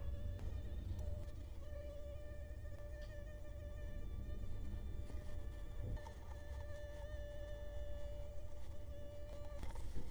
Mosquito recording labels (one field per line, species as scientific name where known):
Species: Culex quinquefasciatus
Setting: cup